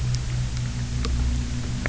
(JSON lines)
{"label": "anthrophony, boat engine", "recorder": "SoundTrap 300"}